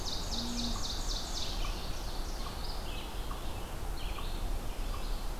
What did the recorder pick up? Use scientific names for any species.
Seiurus aurocapilla, Vireo olivaceus, unknown mammal